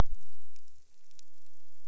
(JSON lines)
{"label": "biophony", "recorder": "SoundTrap 300"}